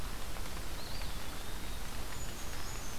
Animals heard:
Eastern Wood-Pewee (Contopus virens)
Brown Creeper (Certhia americana)

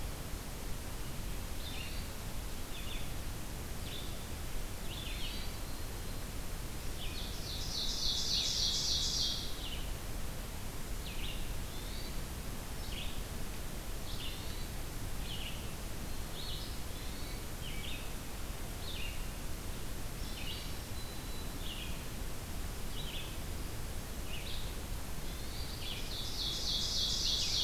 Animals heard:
Hermit Thrush (Catharus guttatus)
Ovenbird (Seiurus aurocapilla)
Black-throated Green Warbler (Setophaga virens)
Red-eyed Vireo (Vireo olivaceus)

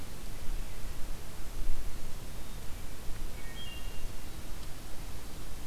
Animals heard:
Wood Thrush (Hylocichla mustelina)

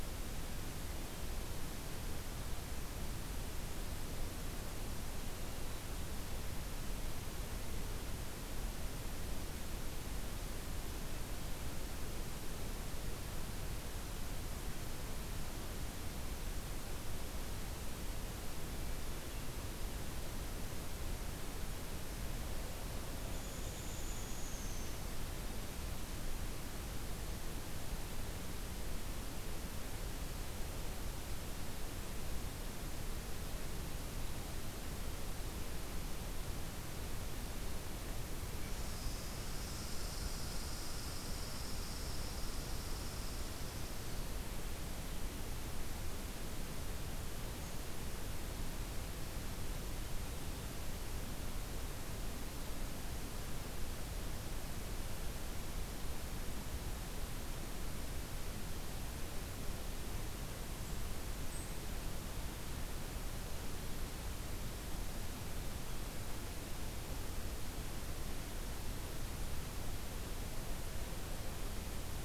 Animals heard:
Hairy Woodpecker (Dryobates villosus)
Red Squirrel (Tamiasciurus hudsonicus)

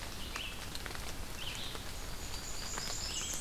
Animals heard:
Blackburnian Warbler (Setophaga fusca)
Red-eyed Vireo (Vireo olivaceus)

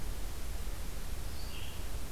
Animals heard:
Red-eyed Vireo (Vireo olivaceus)

